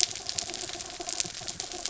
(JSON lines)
{"label": "anthrophony, mechanical", "recorder": "SoundTrap 300"}